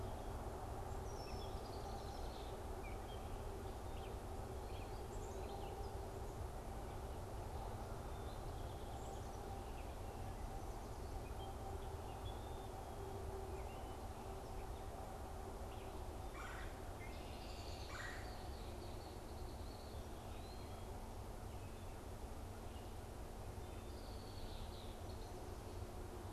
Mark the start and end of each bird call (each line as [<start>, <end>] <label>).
[1.09, 2.59] Red-winged Blackbird (Agelaius phoeniceus)
[2.69, 5.99] Gray Catbird (Dumetella carolinensis)
[16.19, 18.49] Red-bellied Woodpecker (Melanerpes carolinus)
[17.19, 19.99] Red-winged Blackbird (Agelaius phoeniceus)
[23.79, 25.29] Red-winged Blackbird (Agelaius phoeniceus)